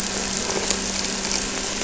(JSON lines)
{"label": "anthrophony, boat engine", "recorder": "SoundTrap 300"}